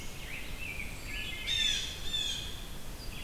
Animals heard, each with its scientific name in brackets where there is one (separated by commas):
Blue Jay (Cyanocitta cristata), Wood Thrush (Hylocichla mustelina), Rose-breasted Grosbeak (Pheucticus ludovicianus), Red-eyed Vireo (Vireo olivaceus)